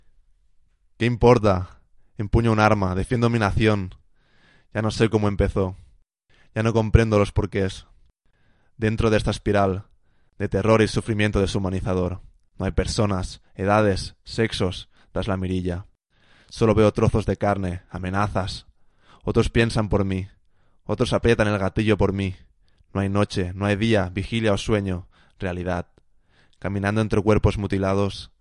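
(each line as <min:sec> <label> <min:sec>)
0:00.7 A person speaks with a firm and authoritative tone, delivering a steady and controlled narrative. 0:28.4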